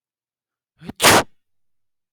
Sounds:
Sneeze